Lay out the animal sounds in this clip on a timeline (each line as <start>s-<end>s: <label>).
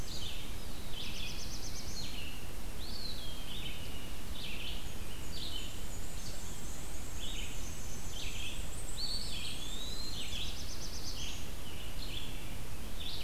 0.0s-13.2s: Red-eyed Vireo (Vireo olivaceus)
0.5s-2.2s: Black-throated Blue Warbler (Setophaga caerulescens)
2.6s-4.5s: Eastern Wood-Pewee (Contopus virens)
4.6s-10.6s: Black-and-white Warbler (Mniotilta varia)
8.9s-10.5s: Eastern Wood-Pewee (Contopus virens)
9.9s-11.6s: Black-throated Blue Warbler (Setophaga caerulescens)